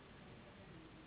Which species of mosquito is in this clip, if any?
Anopheles gambiae s.s.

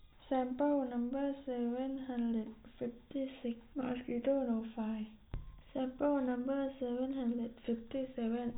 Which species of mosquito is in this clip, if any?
no mosquito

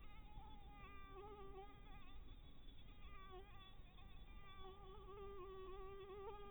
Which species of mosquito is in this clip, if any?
Anopheles dirus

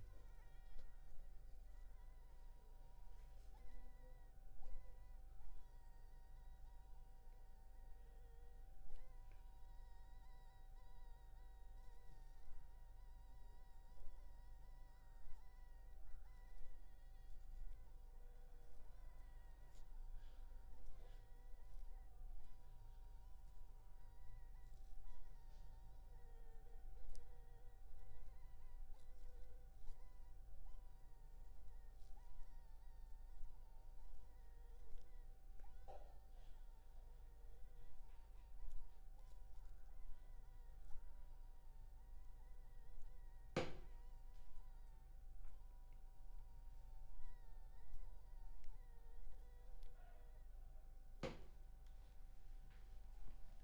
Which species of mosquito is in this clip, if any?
Anopheles funestus s.s.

